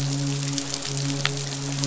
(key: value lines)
label: biophony, midshipman
recorder: SoundTrap 500